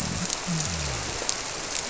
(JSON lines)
{"label": "biophony", "recorder": "SoundTrap 300"}